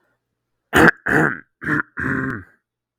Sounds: Throat clearing